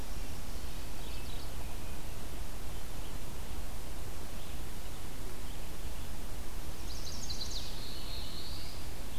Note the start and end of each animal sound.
0.8s-1.6s: Mourning Warbler (Geothlypis philadelphia)
6.6s-7.7s: Chestnut-sided Warbler (Setophaga pensylvanica)
7.2s-9.2s: Black-throated Blue Warbler (Setophaga caerulescens)

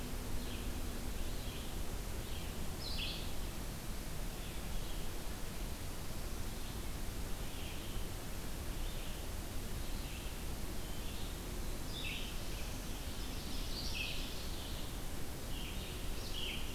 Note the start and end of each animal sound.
0.0s-16.7s: Red-eyed Vireo (Vireo olivaceus)
10.4s-11.6s: Eastern Wood-Pewee (Contopus virens)
12.7s-15.2s: Ovenbird (Seiurus aurocapilla)

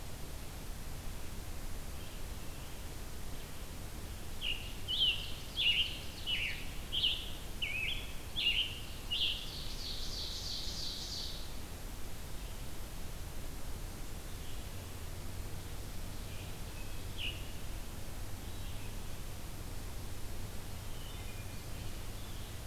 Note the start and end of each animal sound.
4.3s-9.7s: Scarlet Tanager (Piranga olivacea)
9.3s-11.6s: Ovenbird (Seiurus aurocapilla)
16.9s-17.4s: Scarlet Tanager (Piranga olivacea)
20.8s-21.6s: Wood Thrush (Hylocichla mustelina)

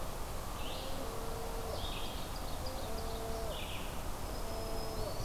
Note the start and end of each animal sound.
0.0s-5.2s: Red-eyed Vireo (Vireo olivaceus)
1.7s-3.5s: Ovenbird (Seiurus aurocapilla)
4.1s-5.2s: Black-throated Green Warbler (Setophaga virens)

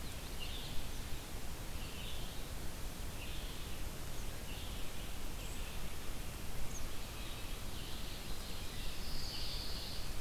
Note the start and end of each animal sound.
0.0s-0.8s: Common Yellowthroat (Geothlypis trichas)
0.0s-4.8s: Red-eyed Vireo (Vireo olivaceus)
6.7s-6.9s: Eastern Kingbird (Tyrannus tyrannus)
7.6s-8.9s: Ovenbird (Seiurus aurocapilla)
8.8s-10.2s: Pine Warbler (Setophaga pinus)
9.3s-9.7s: Red-eyed Vireo (Vireo olivaceus)

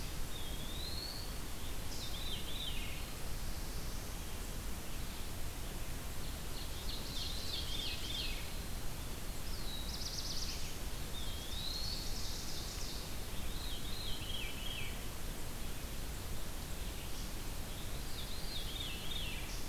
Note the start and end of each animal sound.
0.0s-1.3s: Eastern Wood-Pewee (Contopus virens)
1.7s-3.1s: Veery (Catharus fuscescens)
2.6s-4.2s: Black-throated Blue Warbler (Setophaga caerulescens)
6.3s-8.6s: Ovenbird (Seiurus aurocapilla)
9.3s-11.0s: Black-throated Blue Warbler (Setophaga caerulescens)
10.9s-12.1s: Eastern Wood-Pewee (Contopus virens)
11.4s-13.5s: Ovenbird (Seiurus aurocapilla)
13.2s-14.9s: Veery (Catharus fuscescens)
17.8s-19.4s: Veery (Catharus fuscescens)

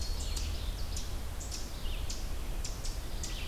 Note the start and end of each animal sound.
0.0s-3.5s: Ovenbird (Seiurus aurocapilla)
1.7s-3.5s: Red-eyed Vireo (Vireo olivaceus)

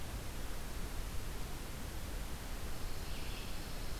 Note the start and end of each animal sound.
2.7s-4.0s: Pine Warbler (Setophaga pinus)
2.9s-4.0s: Red-eyed Vireo (Vireo olivaceus)

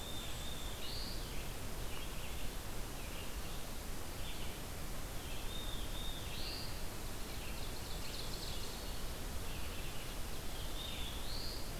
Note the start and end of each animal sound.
0.0s-1.4s: Black-throated Blue Warbler (Setophaga caerulescens)
1.9s-11.8s: Red-eyed Vireo (Vireo olivaceus)
5.5s-6.9s: Black-throated Blue Warbler (Setophaga caerulescens)
7.3s-8.9s: Ovenbird (Seiurus aurocapilla)
9.2s-10.8s: Ovenbird (Seiurus aurocapilla)
10.3s-11.7s: Black-throated Blue Warbler (Setophaga caerulescens)

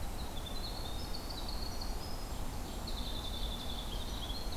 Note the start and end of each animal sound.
0.0s-4.6s: Winter Wren (Troglodytes hiemalis)

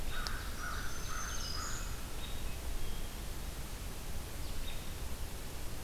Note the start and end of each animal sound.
0.0s-2.0s: American Crow (Corvus brachyrhynchos)
0.1s-1.9s: Ovenbird (Seiurus aurocapilla)
0.5s-2.4s: American Robin (Turdus migratorius)
4.6s-4.9s: American Robin (Turdus migratorius)

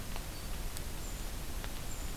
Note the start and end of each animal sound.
0.9s-2.2s: Brown Creeper (Certhia americana)

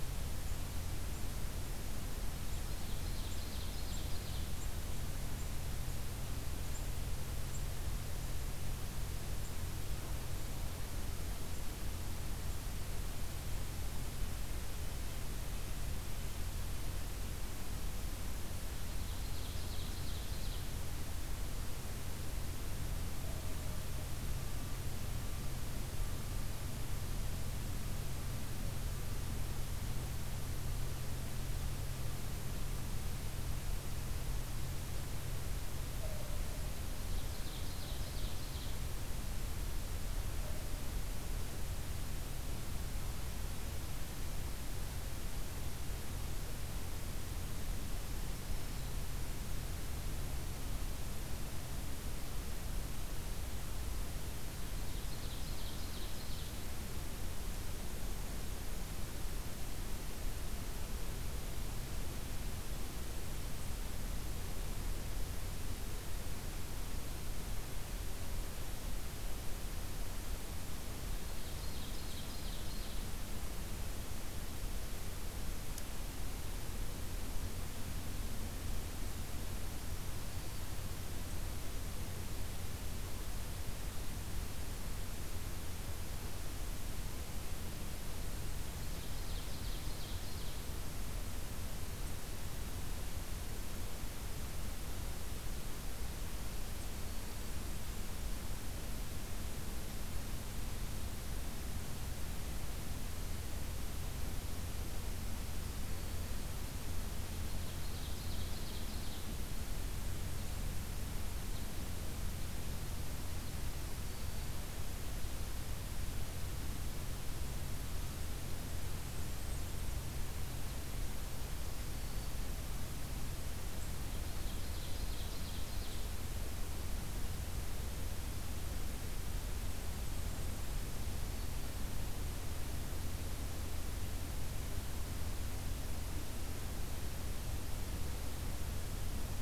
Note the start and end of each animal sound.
0.0s-11.7s: Black-capped Chickadee (Poecile atricapillus)
2.6s-4.6s: Ovenbird (Seiurus aurocapilla)
18.8s-20.7s: Ovenbird (Seiurus aurocapilla)
37.0s-38.8s: Ovenbird (Seiurus aurocapilla)
54.8s-56.7s: Ovenbird (Seiurus aurocapilla)
71.2s-73.1s: Ovenbird (Seiurus aurocapilla)
80.0s-80.9s: Black-throated Green Warbler (Setophaga virens)
88.8s-90.7s: Ovenbird (Seiurus aurocapilla)
96.7s-97.7s: Black-throated Green Warbler (Setophaga virens)
107.4s-109.3s: Ovenbird (Seiurus aurocapilla)
114.0s-114.6s: Black-throated Green Warbler (Setophaga virens)
118.7s-120.2s: Blackburnian Warbler (Setophaga fusca)
121.4s-122.5s: Black-throated Green Warbler (Setophaga virens)
124.1s-126.1s: Ovenbird (Seiurus aurocapilla)
129.6s-130.9s: Blackburnian Warbler (Setophaga fusca)
131.0s-131.8s: Black-throated Green Warbler (Setophaga virens)

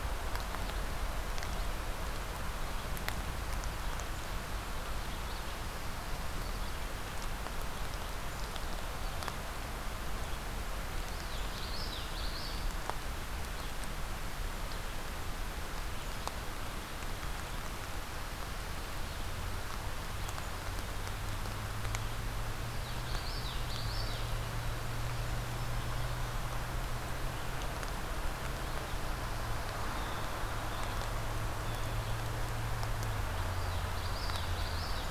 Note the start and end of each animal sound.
11.1s-12.6s: Common Yellowthroat (Geothlypis trichas)
22.7s-24.3s: Common Yellowthroat (Geothlypis trichas)
25.3s-26.4s: Black-throated Green Warbler (Setophaga virens)
29.9s-32.1s: Blue Jay (Cyanocitta cristata)
33.7s-35.1s: Common Yellowthroat (Geothlypis trichas)

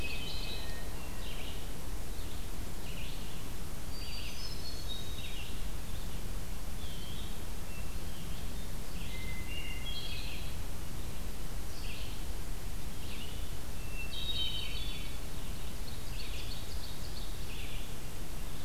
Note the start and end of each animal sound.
0.0s-1.0s: Hermit Thrush (Catharus guttatus)
0.0s-9.5s: Red-eyed Vireo (Vireo olivaceus)
3.9s-5.5s: Hermit Thrush (Catharus guttatus)
7.6s-10.8s: Hermit Thrush (Catharus guttatus)
9.8s-18.6s: Red-eyed Vireo (Vireo olivaceus)
13.7s-15.3s: Hermit Thrush (Catharus guttatus)
15.6s-17.7s: Ovenbird (Seiurus aurocapilla)

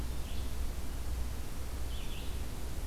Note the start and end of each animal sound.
0.0s-2.9s: Red-eyed Vireo (Vireo olivaceus)

